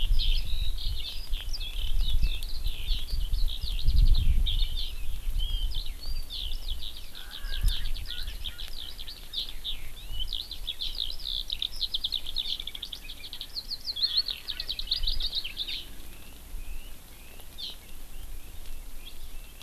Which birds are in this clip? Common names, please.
Eurasian Skylark, Erckel's Francolin, Red-billed Leiothrix